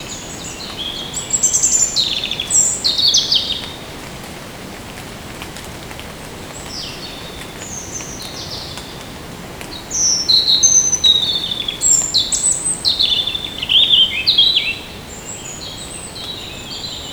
is there only one bird?
no